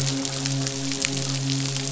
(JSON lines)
{"label": "biophony, midshipman", "recorder": "SoundTrap 500"}